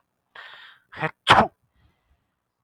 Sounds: Sneeze